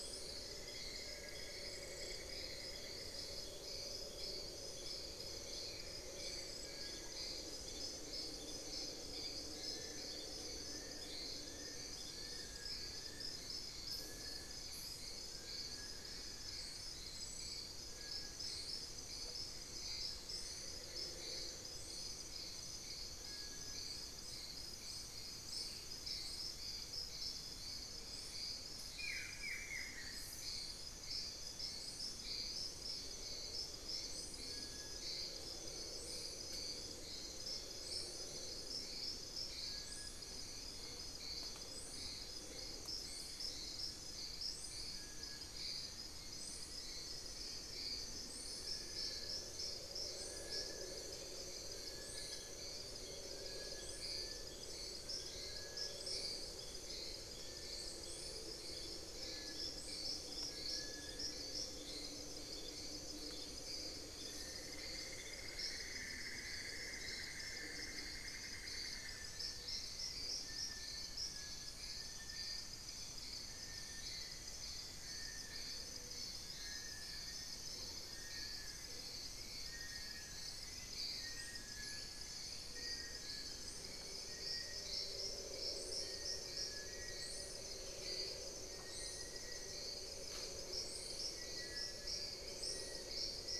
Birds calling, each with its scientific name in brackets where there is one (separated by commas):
Fasciated Antshrike (Cymbilaimus lineatus), unidentified bird, Cinereous Tinamou (Crypturellus cinereus), Buff-throated Woodcreeper (Xiphorhynchus guttatus), Little Tinamou (Crypturellus soui), Cinnamon-throated Woodcreeper (Dendrexetastes rufigula), Black-faced Antthrush (Formicarius analis), Long-billed Woodcreeper (Nasica longirostris), Gray Antwren (Myrmotherula menetriesii), Plain-winged Antshrike (Thamnophilus schistaceus)